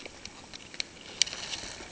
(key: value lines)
label: ambient
recorder: HydroMoth